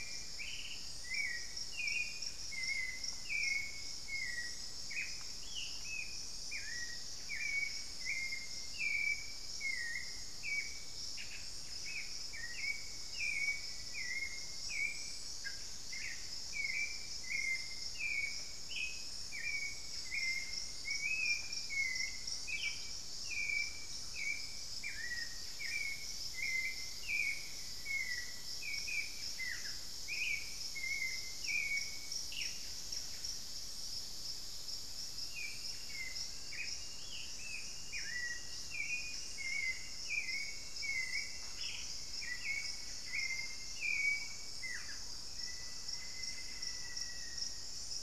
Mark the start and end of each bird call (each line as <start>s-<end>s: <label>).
0.0s-0.7s: Black-faced Antthrush (Formicarius analis)
0.0s-12.4s: Buff-breasted Wren (Cantorchilus leucotis)
0.0s-32.7s: unidentified bird
0.0s-48.0s: Hauxwell's Thrush (Turdus hauxwelli)
5.2s-6.3s: Ringed Antpipit (Corythopis torquatus)
11.8s-14.5s: Black-faced Antthrush (Formicarius analis)
19.9s-24.2s: Thrush-like Wren (Campylorhynchus turdinus)
24.3s-36.6s: Buff-breasted Wren (Cantorchilus leucotis)
26.2s-28.9s: Black-faced Antthrush (Formicarius analis)
36.8s-37.7s: Ringed Antpipit (Corythopis torquatus)
41.0s-47.0s: Thrush-like Wren (Campylorhynchus turdinus)
42.1s-43.4s: Buff-breasted Wren (Cantorchilus leucotis)
45.2s-47.6s: Black-faced Antthrush (Formicarius analis)